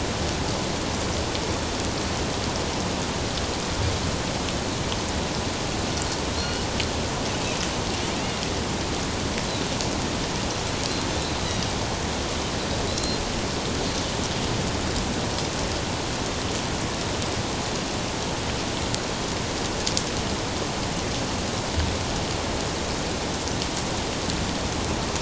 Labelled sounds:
6.4	6.6	Pacific white-sided dolphin, 4.2 to 4.4 kHz
12.9	13.2	Pacific white-sided dolphin, 3.8 to 4.2 kHz

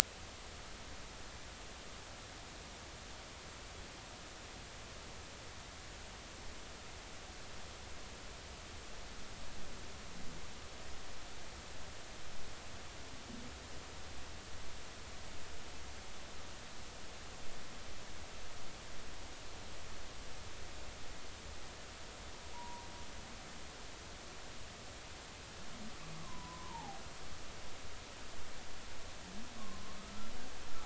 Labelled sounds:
22.5	22.9	humpback whale, 0.90 to 1.1 kHz
26.2	27.0	humpback whale, 0.80 to 1.2 kHz
29.6	30.3	humpback whale, 0.99 to 1.4 kHz

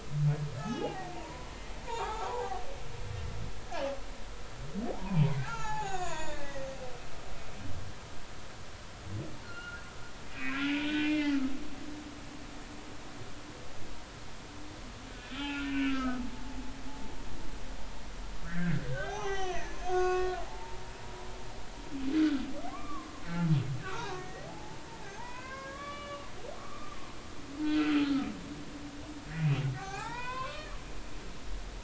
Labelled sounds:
0.6	1.6	humpback whale, 0.80 to 5.3 kHz
1.9	2.6	humpback whale, 0.80 to 3.8 kHz
3.5	3.9	humpback whale, 1.6 to 1.8 kHz
4.9	6.8	humpback whale, 0.80 to 7.1 kHz
9.4	11.4	humpback whale, 1.3 to 3.2 kHz
15.1	16.2	humpback whale, 1.2 to 3.6 kHz
18.5	20.8	humpback whale, 0.80 to 6.5 kHz
22.2	23.1	humpback whale, 0.99 to 1.5 kHz
23.8	24.8	humpback whale, 0.80 to 4.0 kHz
25.2	26.3	humpback whale, 0.83 to 3.5 kHz
26.6	28.3	humpback whale, 1.1 to 3.1 kHz
29.3	30.7	humpback whale, 0.80 to 4.4 kHz

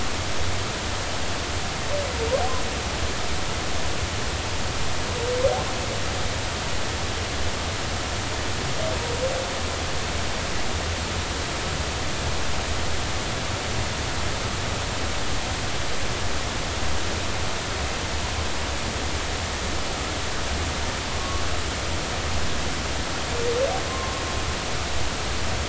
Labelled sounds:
23.9	24.2	humpback whale, 0.99 to 1.1 kHz

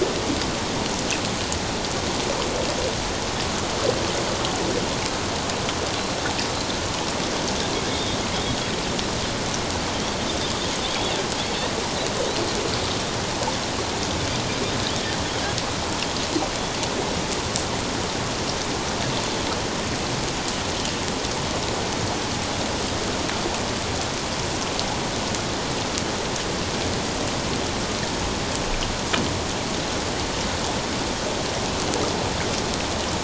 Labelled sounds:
7.9	8.2	Pacific white-sided dolphin, 3.5 to 3.7 kHz

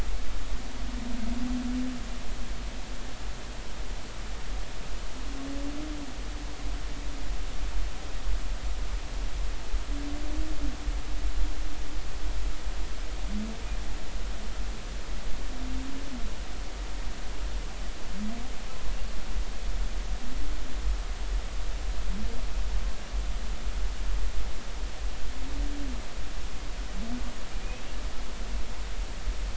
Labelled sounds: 27.6	27.9	humpback whale, 2.4 to 2.6 kHz

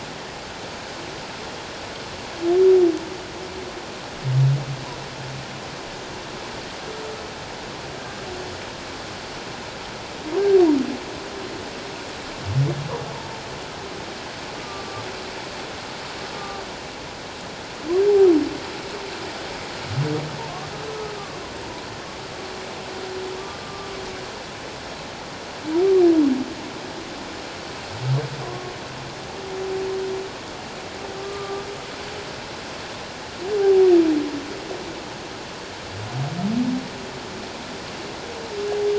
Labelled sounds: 14.6	15.0	humpback whale, 1.1 to 1.2 kHz
16.4	16.6	humpback whale, 1.1 to 1.2 kHz
23.6	23.9	humpback whale, 1.1 to 1.2 kHz
31.2	31.7	humpback whale, 1.1 to 1.2 kHz
33.6	33.9	humpback whale, 0.78 to 0.84 kHz

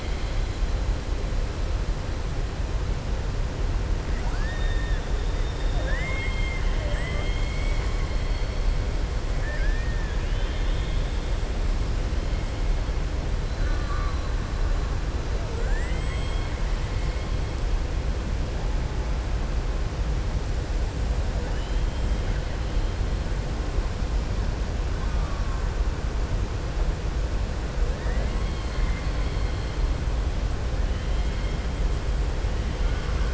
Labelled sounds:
4.1	5.0	killer whale, southern resident, 0.76 to 4.8 kHz
5.3	8.6	killer whale, southern resident, 0.53 to 8.0 kHz
9.3	11.2	killer whale, southern resident, 1.6 to 3.8 kHz
13.5	14.2	killer whale, southern resident, 1.1 to 2.2 kHz
15.4	16.6	killer whale, southern resident, 0.46 to 3.3 kHz

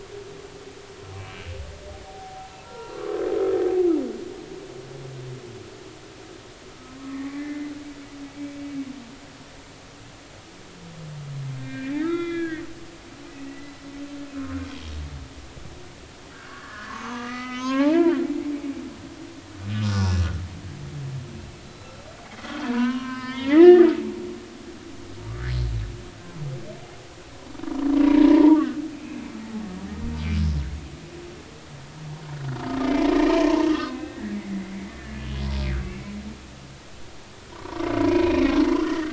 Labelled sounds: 1.1	3.2	humpback whale, 0.80 to 2.4 kHz
6.8	7.7	humpback whale, 0.99 to 2.1 kHz
11.6	12.6	humpback whale, 1.2 to 3.8 kHz
13.4	14.9	humpback whale, 1.9 to 3.3 kHz
16.3	18.2	humpback whale, 0.80 to 6.7 kHz
19.9	20.3	humpback whale, 1.4 to 5.7 kHz
21.6	21.9	humpback whale, 3.9 to 4.0 kHz
22.6	23.9	humpback whale, 0.86 to 5.3 kHz
28.0	29.3	humpback whale, 0.86 to 2.6 kHz
30.4	30.6	humpback whale, 5.2 to 5.4 kHz
32.8	35.3	humpback whale, 0.86 to 2.7 kHz
37.5	39.1	humpback whale, 0.90 to 2.6 kHz

